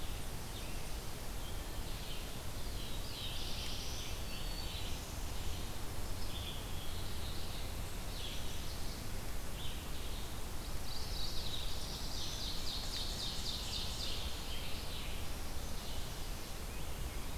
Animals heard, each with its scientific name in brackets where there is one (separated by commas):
Red-eyed Vireo (Vireo olivaceus), Mourning Warbler (Geothlypis philadelphia), Black-throated Green Warbler (Setophaga virens), Scarlet Tanager (Piranga olivacea), Ovenbird (Seiurus aurocapilla), Black-throated Blue Warbler (Setophaga caerulescens)